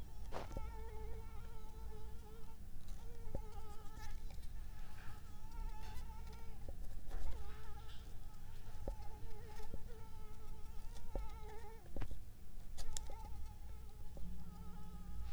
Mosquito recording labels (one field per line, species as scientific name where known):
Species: Anopheles arabiensis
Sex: female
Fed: unfed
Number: one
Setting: cup